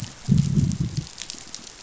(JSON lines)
{"label": "biophony, growl", "recorder": "SoundTrap 500"}